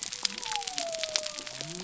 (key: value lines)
label: biophony
recorder: SoundTrap 300